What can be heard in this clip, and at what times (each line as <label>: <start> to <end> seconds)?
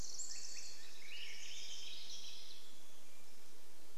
Pacific Wren song: 0 to 2 seconds
Swainson's Thrush call: 0 to 2 seconds
Swainson's Thrush song: 0 to 4 seconds